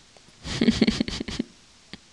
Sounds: Laughter